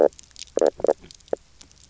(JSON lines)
{"label": "biophony, knock croak", "recorder": "SoundTrap 300"}